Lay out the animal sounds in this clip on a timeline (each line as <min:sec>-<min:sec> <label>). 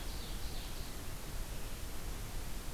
0:00.0-0:01.1 Ovenbird (Seiurus aurocapilla)